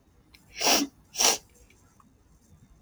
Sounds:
Sniff